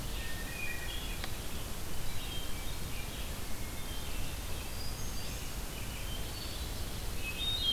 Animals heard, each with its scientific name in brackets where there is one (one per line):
Red-eyed Vireo (Vireo olivaceus)
Hermit Thrush (Catharus guttatus)